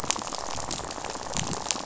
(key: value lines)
label: biophony, rattle
recorder: SoundTrap 500